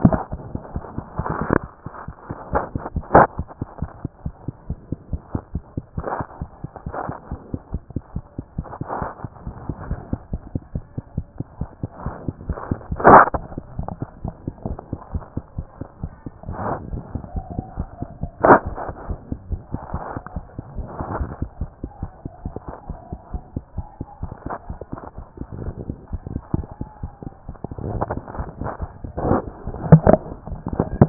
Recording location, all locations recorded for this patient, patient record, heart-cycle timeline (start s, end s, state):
mitral valve (MV)
aortic valve (AV)+mitral valve (MV)
#Age: Child
#Sex: Female
#Height: 86.0 cm
#Weight: 11.6 kg
#Pregnancy status: False
#Murmur: Absent
#Murmur locations: nan
#Most audible location: nan
#Systolic murmur timing: nan
#Systolic murmur shape: nan
#Systolic murmur grading: nan
#Systolic murmur pitch: nan
#Systolic murmur quality: nan
#Diastolic murmur timing: nan
#Diastolic murmur shape: nan
#Diastolic murmur grading: nan
#Diastolic murmur pitch: nan
#Diastolic murmur quality: nan
#Outcome: Abnormal
#Campaign: 2014 screening campaign
0.00	4.02	unannotated
4.02	4.24	diastole
4.24	4.34	S1
4.34	4.46	systole
4.46	4.54	S2
4.54	4.68	diastole
4.68	4.78	S1
4.78	4.90	systole
4.90	4.98	S2
4.98	5.12	diastole
5.12	5.22	S1
5.22	5.32	systole
5.32	5.42	S2
5.42	5.54	diastole
5.54	5.64	S1
5.64	5.76	systole
5.76	5.84	S2
5.84	5.98	diastole
5.98	6.06	S1
6.06	6.18	systole
6.18	6.26	S2
6.26	6.42	diastole
6.42	6.50	S1
6.50	6.62	systole
6.62	6.70	S2
6.70	6.86	diastole
6.86	6.96	S1
6.96	7.06	systole
7.06	7.16	S2
7.16	7.30	diastole
7.30	7.40	S1
7.40	7.52	systole
7.52	7.60	S2
7.60	7.72	diastole
7.72	7.82	S1
7.82	7.94	systole
7.94	8.02	S2
8.02	8.16	diastole
8.16	8.24	S1
8.24	8.38	systole
8.38	8.44	S2
8.44	8.58	diastole
8.58	8.66	S1
8.66	8.80	systole
8.80	8.88	S2
8.88	9.00	diastole
9.00	9.10	S1
9.10	9.24	systole
9.24	9.32	S2
9.32	9.46	diastole
9.46	9.56	S1
9.56	9.68	systole
9.68	9.74	S2
9.74	9.88	diastole
9.88	10.00	S1
10.00	10.10	systole
10.10	10.20	S2
10.20	10.32	diastole
10.32	10.42	S1
10.42	10.54	systole
10.54	10.62	S2
10.62	10.74	diastole
10.74	10.84	S1
10.84	10.96	systole
10.96	11.04	S2
11.04	11.16	diastole
11.16	11.26	S1
11.26	11.38	systole
11.38	11.46	S2
11.46	11.60	diastole
11.60	11.70	S1
11.70	11.82	systole
11.82	11.90	S2
11.90	12.04	diastole
12.04	12.14	S1
12.14	12.26	systole
12.26	12.34	S2
12.34	12.48	diastole
12.48	12.53	S1
12.53	31.09	unannotated